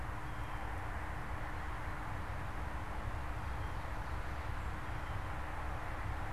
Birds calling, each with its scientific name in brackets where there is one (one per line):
Blue Jay (Cyanocitta cristata)